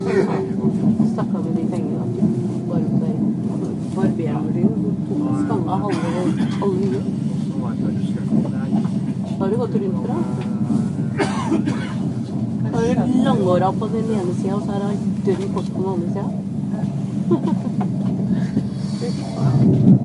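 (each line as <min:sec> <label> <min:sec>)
0:00.0 A low humming sound of a train going over tracks. 0:20.0
0:00.5 A train runs over tracks, heard from inside the train. 0:01.2
0:00.8 A person is speaking in a low tone. 0:02.6
0:02.7 A person speaks quietly inside a train. 0:07.9
0:09.3 Three people speaking at different distances inside a train. 0:12.0
0:12.4 A person is talking inside a train. 0:16.9
0:17.2 A person laughing inside a train. 0:18.4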